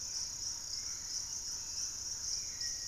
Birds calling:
Black-faced Antthrush (Formicarius analis)
Hauxwell's Thrush (Turdus hauxwelli)
Thrush-like Wren (Campylorhynchus turdinus)

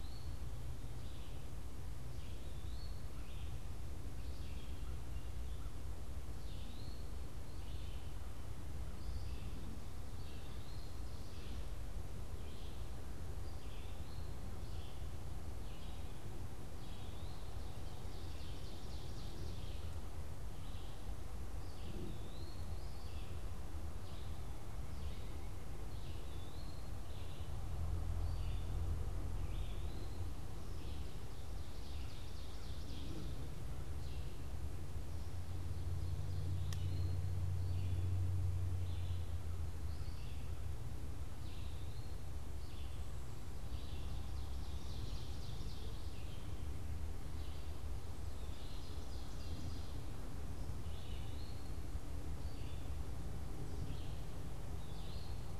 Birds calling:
Red-eyed Vireo (Vireo olivaceus)
Ovenbird (Seiurus aurocapilla)
Eastern Wood-Pewee (Contopus virens)

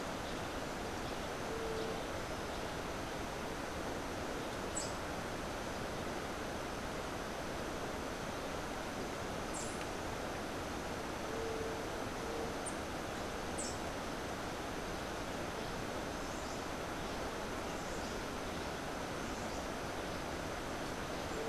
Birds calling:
Rufous-capped Warbler (Basileuterus rufifrons)

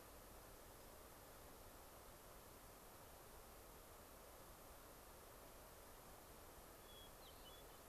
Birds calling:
Hermit Thrush (Catharus guttatus)

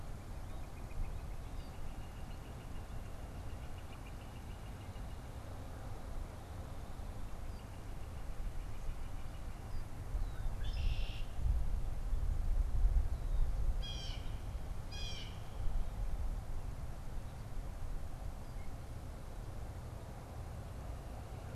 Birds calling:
Blue Jay (Cyanocitta cristata)
Northern Flicker (Colaptes auratus)
Red-winged Blackbird (Agelaius phoeniceus)

